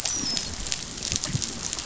{"label": "biophony, dolphin", "recorder": "SoundTrap 500"}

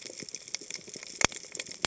{"label": "biophony, cascading saw", "recorder": "HydroMoth"}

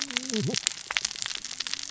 {"label": "biophony, cascading saw", "recorder": "SoundTrap 600 or HydroMoth"}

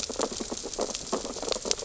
{"label": "biophony, sea urchins (Echinidae)", "recorder": "SoundTrap 600 or HydroMoth"}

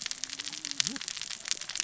{"label": "biophony, cascading saw", "recorder": "SoundTrap 600 or HydroMoth"}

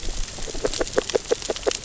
{"label": "biophony, grazing", "recorder": "SoundTrap 600 or HydroMoth"}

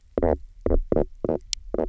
{"label": "biophony, knock croak", "recorder": "SoundTrap 300"}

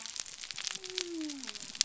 {"label": "biophony", "recorder": "SoundTrap 300"}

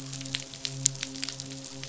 {"label": "biophony, midshipman", "recorder": "SoundTrap 500"}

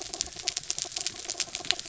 {"label": "anthrophony, mechanical", "recorder": "SoundTrap 300"}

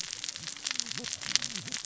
{"label": "biophony, cascading saw", "recorder": "SoundTrap 600 or HydroMoth"}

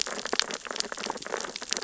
{"label": "biophony, sea urchins (Echinidae)", "recorder": "SoundTrap 600 or HydroMoth"}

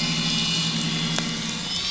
{"label": "anthrophony, boat engine", "recorder": "SoundTrap 500"}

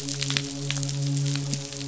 {"label": "biophony, midshipman", "recorder": "SoundTrap 500"}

